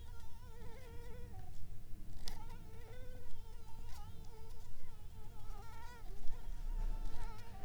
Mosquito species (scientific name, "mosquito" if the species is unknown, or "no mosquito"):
Anopheles arabiensis